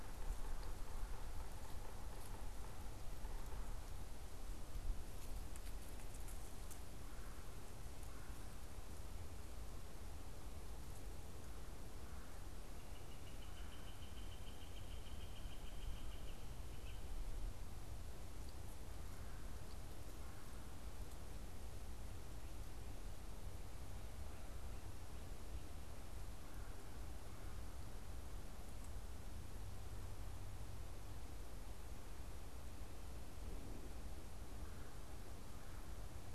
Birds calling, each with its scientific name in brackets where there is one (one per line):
Yellow-bellied Sapsucker (Sphyrapicus varius)
Red-bellied Woodpecker (Melanerpes carolinus)
Northern Flicker (Colaptes auratus)